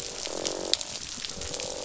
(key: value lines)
label: biophony, croak
recorder: SoundTrap 500